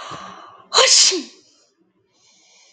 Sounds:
Sneeze